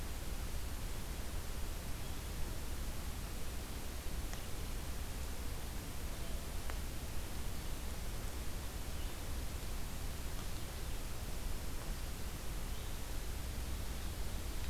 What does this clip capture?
Red-eyed Vireo